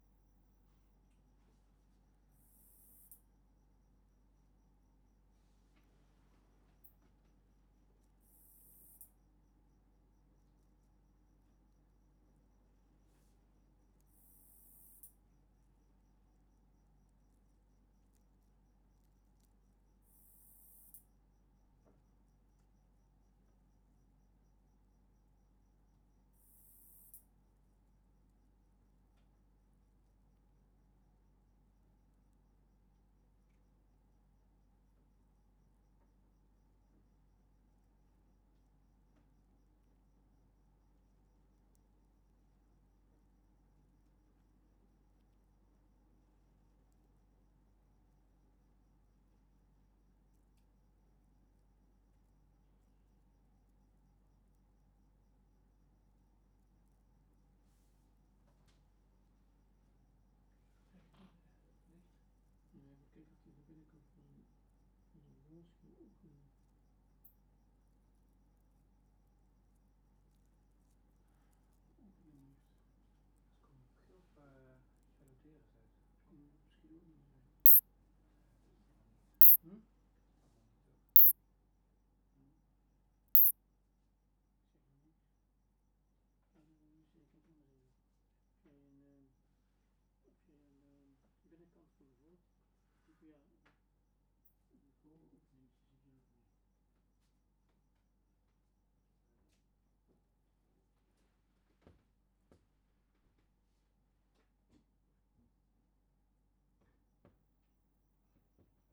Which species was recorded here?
Isophya rhodopensis